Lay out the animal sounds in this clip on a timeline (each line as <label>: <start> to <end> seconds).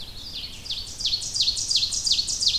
Ovenbird (Seiurus aurocapilla): 0.0 to 2.6 seconds
Red-eyed Vireo (Vireo olivaceus): 0.0 to 2.6 seconds